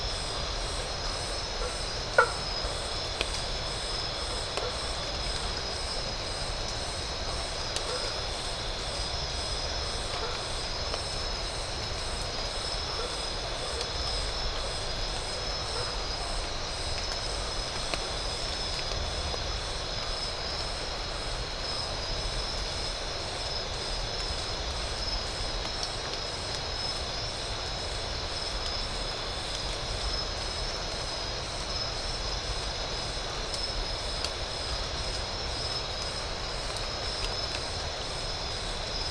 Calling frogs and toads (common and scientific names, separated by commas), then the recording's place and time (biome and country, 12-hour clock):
blacksmith tree frog (Boana faber)
Atlantic Forest, Brazil, 10:45pm